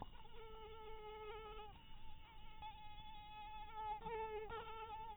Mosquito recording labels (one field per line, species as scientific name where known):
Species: mosquito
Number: one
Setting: cup